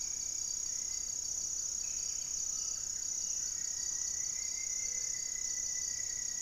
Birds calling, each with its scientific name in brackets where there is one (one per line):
Black-faced Antthrush (Formicarius analis)
Gray-cowled Wood-Rail (Aramides cajaneus)
Gray-fronted Dove (Leptotila rufaxilla)
Hauxwell's Thrush (Turdus hauxwelli)
Buff-breasted Wren (Cantorchilus leucotis)
Buff-throated Woodcreeper (Xiphorhynchus guttatus)